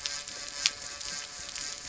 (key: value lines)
label: anthrophony, boat engine
recorder: SoundTrap 300